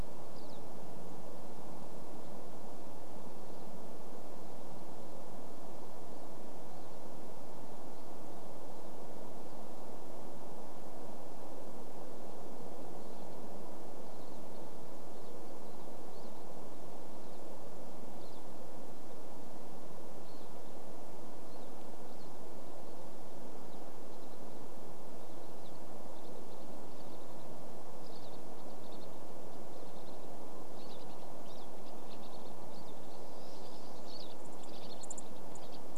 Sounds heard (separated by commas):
Pine Siskin call, unidentified bird chip note, Pine Siskin song